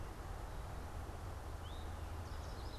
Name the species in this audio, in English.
Eastern Towhee, Yellow Warbler